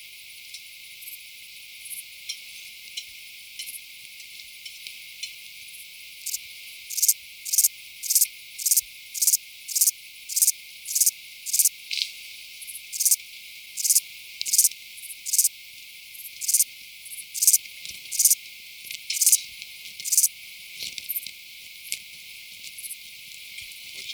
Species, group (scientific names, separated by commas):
Pholidoptera aptera, Orthoptera